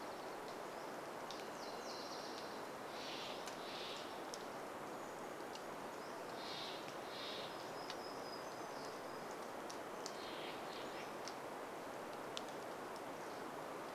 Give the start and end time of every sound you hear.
0s-2s: Dark-eyed Junco song
0s-4s: Nashville Warbler song
0s-4s: Varied Thrush song
0s-14s: rain
2s-8s: Steller's Jay call
6s-10s: warbler song
10s-12s: Pacific-slope Flycatcher song
10s-12s: Steller's Jay call

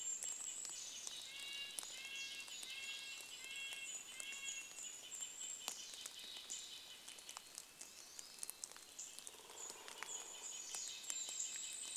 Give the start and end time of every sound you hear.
0s-8s: Mountain Chickadee call
0s-8s: Red-breasted Nuthatch song
0s-12s: rain
2s-6s: Golden-crowned Kinglet song
6s-12s: Pine Siskin call
8s-12s: Golden-crowned Kinglet song
8s-12s: woodpecker drumming
10s-12s: Red-breasted Nuthatch song

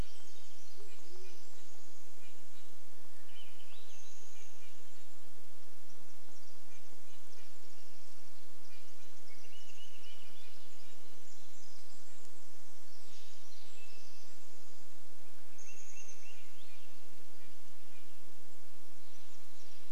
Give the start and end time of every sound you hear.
0s-2s: Band-tailed Pigeon song
0s-2s: Pacific Wren song
0s-2s: Varied Thrush song
0s-4s: Red-breasted Nuthatch song
0s-12s: insect buzz
2s-6s: Swainson's Thrush song
4s-6s: Chestnut-backed Chickadee call
6s-10s: Red-breasted Nuthatch song
6s-16s: Pacific Wren song
8s-12s: Swainson's Thrush song
10s-12s: Varied Thrush song
12s-14s: Red-breasted Nuthatch song
14s-18s: Chestnut-backed Chickadee call
16s-18s: Red-breasted Nuthatch song
16s-18s: Swainson's Thrush song
18s-20s: Steller's Jay call
18s-20s: unidentified sound

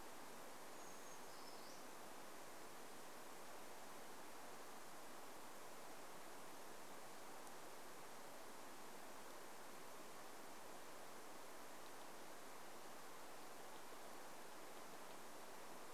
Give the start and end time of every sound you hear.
0s-2s: Brown Creeper song

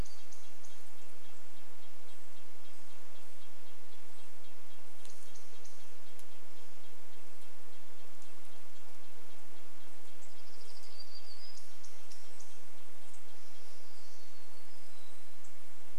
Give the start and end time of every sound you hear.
0s-2s: warbler song
0s-6s: unidentified bird chip note
0s-12s: insect buzz
0s-16s: Red-breasted Nuthatch song
8s-16s: unidentified bird chip note
10s-12s: Dark-eyed Junco song
10s-12s: warbler song
14s-16s: warbler song

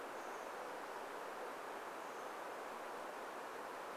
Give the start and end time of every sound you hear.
0s-4s: Chestnut-backed Chickadee call

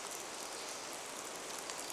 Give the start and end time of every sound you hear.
0s-2s: Hermit Warbler song
0s-2s: rain

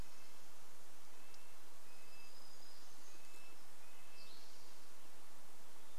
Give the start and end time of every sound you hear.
0s-6s: Red-breasted Nuthatch song
2s-4s: warbler song
4s-6s: Spotted Towhee song

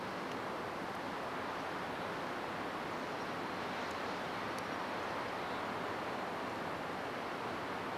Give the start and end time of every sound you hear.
2s-6s: Mountain Chickadee call
6s-8s: Golden-crowned Kinglet song

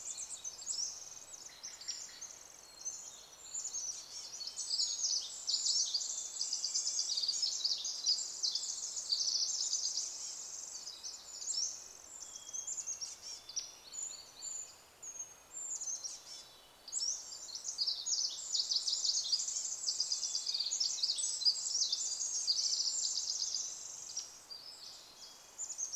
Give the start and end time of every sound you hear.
0s-2s: Red-breasted Nuthatch song
0s-4s: Steller's Jay call
0s-14s: Pacific Wren song
2s-4s: Hermit Thrush song
2s-4s: unidentified sound
2s-8s: Chestnut-backed Chickadee call
4s-14s: Red-breasted Nuthatch song
6s-8s: Hermit Thrush song
12s-14s: Chestnut-backed Chickadee call
12s-14s: Hammond's Flycatcher song
12s-14s: Hermit Thrush song
14s-16s: Brown Creeper call
14s-16s: unidentified sound
14s-18s: Brown Creeper song
16s-18s: Pacific-slope Flycatcher song
16s-20s: Chestnut-backed Chickadee call
16s-26s: Pacific Wren song
18s-22s: Red-breasted Nuthatch song
20s-22s: Hermit Thrush song
22s-24s: Chestnut-backed Chickadee call
24s-26s: Hermit Thrush song
24s-26s: Red-breasted Nuthatch song

